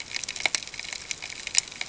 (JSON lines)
{"label": "ambient", "recorder": "HydroMoth"}